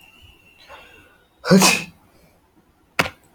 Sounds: Sneeze